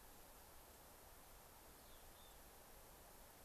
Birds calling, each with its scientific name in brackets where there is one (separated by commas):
Mountain Chickadee (Poecile gambeli)